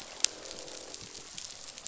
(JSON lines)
{"label": "biophony, croak", "recorder": "SoundTrap 500"}